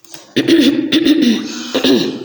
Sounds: Throat clearing